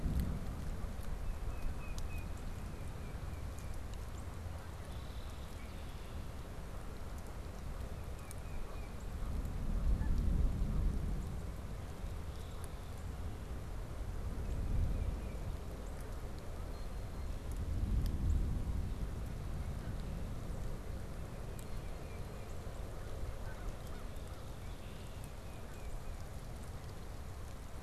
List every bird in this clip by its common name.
Tufted Titmouse, Northern Cardinal, Canada Goose, Red-winged Blackbird, Blue Jay, American Crow